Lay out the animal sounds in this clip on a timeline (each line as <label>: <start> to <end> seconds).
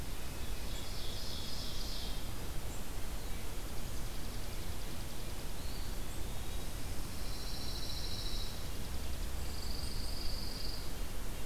Hermit Thrush (Catharus guttatus): 0.0 to 0.7 seconds
Ovenbird (Seiurus aurocapilla): 0.4 to 2.2 seconds
Chipping Sparrow (Spizella passerina): 3.6 to 5.6 seconds
Eastern Wood-Pewee (Contopus virens): 5.3 to 7.1 seconds
Pine Warbler (Setophaga pinus): 6.8 to 8.6 seconds
Chipping Sparrow (Spizella passerina): 8.4 to 9.4 seconds
Pine Warbler (Setophaga pinus): 9.3 to 10.8 seconds
Red-breasted Nuthatch (Sitta canadensis): 9.6 to 11.5 seconds